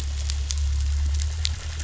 {"label": "anthrophony, boat engine", "recorder": "SoundTrap 500"}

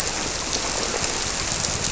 {"label": "biophony", "recorder": "SoundTrap 300"}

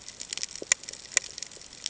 {"label": "ambient", "recorder": "HydroMoth"}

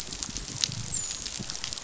{"label": "biophony, dolphin", "recorder": "SoundTrap 500"}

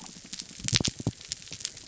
{"label": "biophony", "recorder": "SoundTrap 300"}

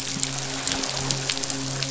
{"label": "biophony, midshipman", "recorder": "SoundTrap 500"}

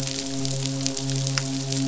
{"label": "biophony, midshipman", "recorder": "SoundTrap 500"}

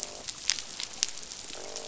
{"label": "biophony, croak", "recorder": "SoundTrap 500"}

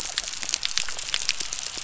{"label": "biophony", "recorder": "SoundTrap 300"}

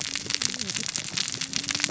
{"label": "biophony, cascading saw", "recorder": "SoundTrap 600 or HydroMoth"}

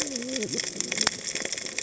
{"label": "biophony, cascading saw", "recorder": "HydroMoth"}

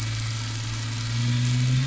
{"label": "anthrophony, boat engine", "recorder": "SoundTrap 500"}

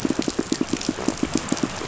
{"label": "biophony, pulse", "recorder": "SoundTrap 500"}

